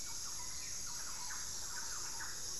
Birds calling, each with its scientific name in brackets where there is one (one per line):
Hauxwell's Thrush (Turdus hauxwelli)
Thrush-like Wren (Campylorhynchus turdinus)